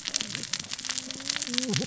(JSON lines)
{"label": "biophony, cascading saw", "recorder": "SoundTrap 600 or HydroMoth"}